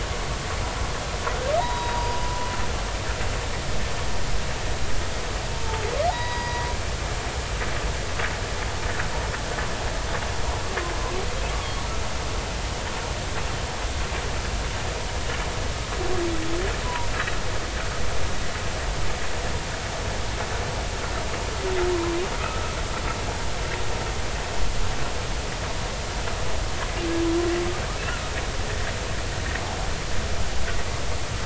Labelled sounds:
1.6	2.2	humpback whale, 0.80 to 3.9 kHz
5.5	6.7	humpback whale, 0.80 to 4.9 kHz
16.8	17.1	humpback whale, 0.90 to 1.1 kHz
22.4	22.8	humpback whale, 1.2 to 1.4 kHz

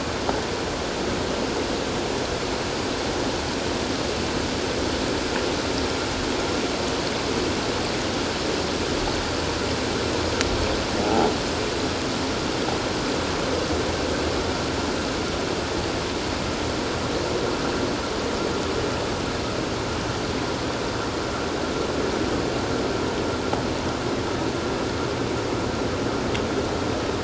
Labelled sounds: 11.0	11.3	croaking sound likely from a nearby submerged object, 0.78 to 0.91 kHz

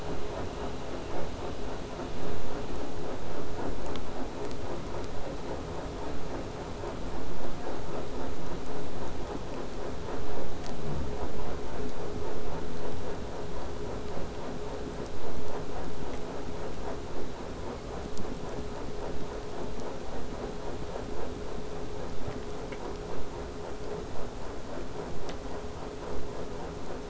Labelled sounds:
22.1	27.0	vessel noise, 0 to 8.0 kHz

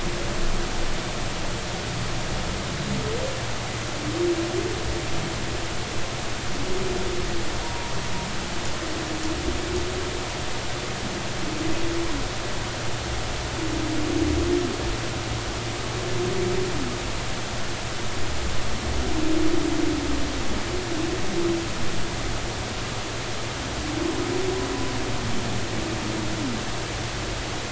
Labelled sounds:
7.6	7.9	humpback whale, 0.90 to 0.99 kHz

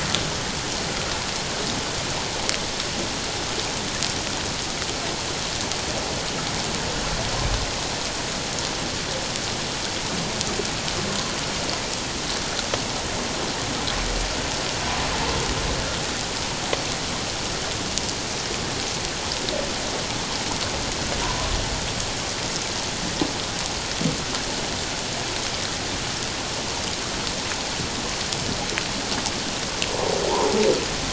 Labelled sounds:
21.2	21.5	humpback whale, 0.91 to 1.1 kHz

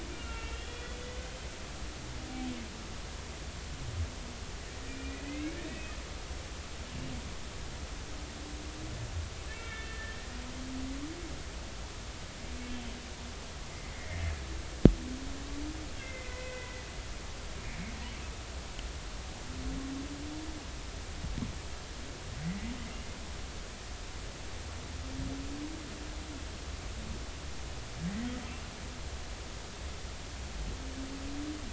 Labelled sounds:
0.1	1.2	humpback whale, 1.3 to 3.5 kHz
4.9	5.9	humpback whale, 2.0 to 2.6 kHz
9.5	10.2	humpback whale, 1.7 to 2.3 kHz
13.7	14.2	humpback whale, 1.7 to 2.1 kHz
15.9	16.8	humpback whale, 1.9 to 2.8 kHz

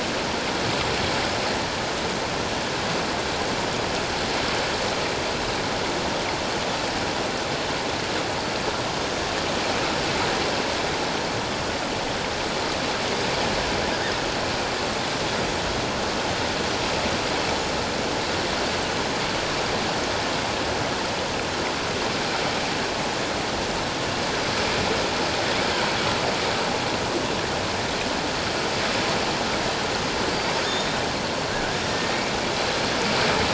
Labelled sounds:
18.9	19.2	killer whale, offshore, 6.2 to 6.5 kHz
30.6	30.9	killer whale, offshore, 6.4 to 6.8 kHz

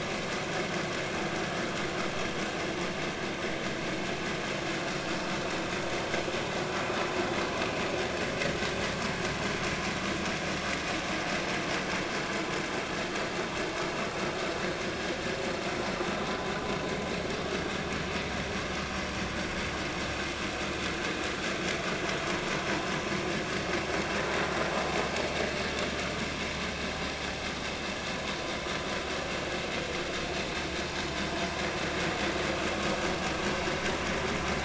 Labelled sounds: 4.8	5.1	vessel noise, 1.2 to 1.4 kHz

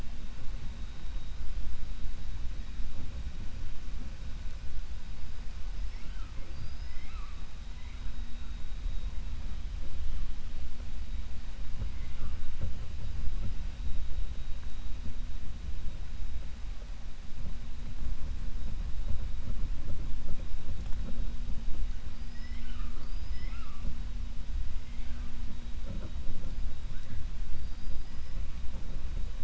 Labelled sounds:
6.4	7.4	killer whale, 1.1 to 5.3 kHz
22.1	23.9	killer whale, 0.56 to 5.4 kHz

